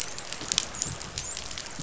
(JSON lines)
{"label": "biophony, dolphin", "recorder": "SoundTrap 500"}